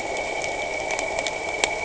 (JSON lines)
{"label": "anthrophony, boat engine", "recorder": "HydroMoth"}